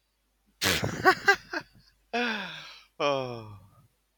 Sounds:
Laughter